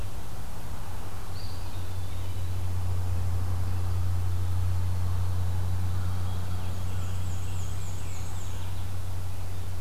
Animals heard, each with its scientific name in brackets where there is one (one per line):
Black-and-white Warbler (Mniotilta varia)
Eastern Wood-Pewee (Contopus virens)